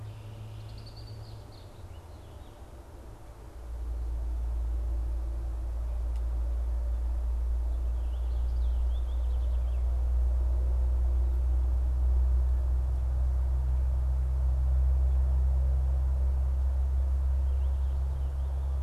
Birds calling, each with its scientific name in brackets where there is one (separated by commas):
Red-winged Blackbird (Agelaius phoeniceus), Purple Finch (Haemorhous purpureus)